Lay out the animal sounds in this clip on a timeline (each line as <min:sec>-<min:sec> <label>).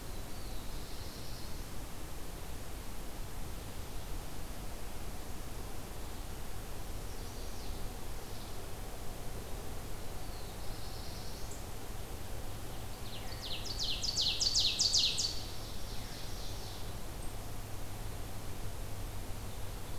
0:00.0-0:01.8 Black-throated Blue Warbler (Setophaga caerulescens)
0:06.9-0:07.8 Chestnut-sided Warbler (Setophaga pensylvanica)
0:10.1-0:11.8 Black-throated Blue Warbler (Setophaga caerulescens)
0:12.8-0:16.9 Ovenbird (Seiurus aurocapilla)